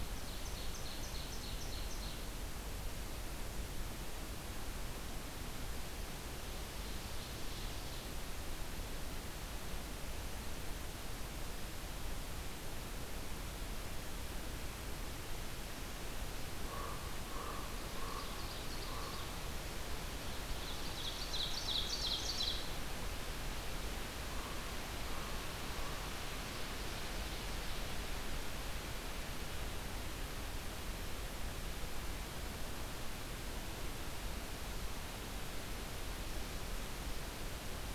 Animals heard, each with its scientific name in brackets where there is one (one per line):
Ovenbird (Seiurus aurocapilla)
Common Raven (Corvus corax)